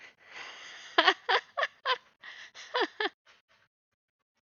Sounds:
Laughter